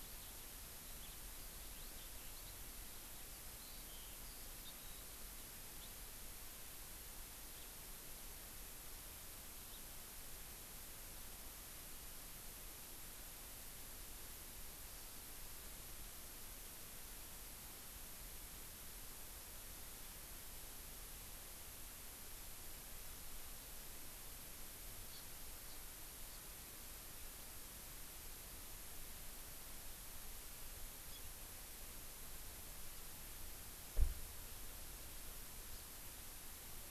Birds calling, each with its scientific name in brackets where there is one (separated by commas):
Eurasian Skylark (Alauda arvensis), House Finch (Haemorhous mexicanus), Hawaii Amakihi (Chlorodrepanis virens)